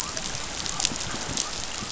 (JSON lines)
{"label": "biophony", "recorder": "SoundTrap 500"}